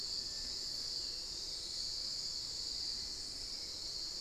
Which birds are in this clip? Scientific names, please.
Turdus hauxwelli, Crypturellus cinereus